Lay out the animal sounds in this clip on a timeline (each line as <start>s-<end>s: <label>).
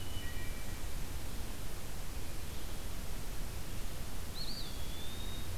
0.0s-0.9s: Wood Thrush (Hylocichla mustelina)
4.2s-5.6s: Eastern Wood-Pewee (Contopus virens)